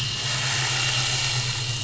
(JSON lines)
{"label": "anthrophony, boat engine", "recorder": "SoundTrap 500"}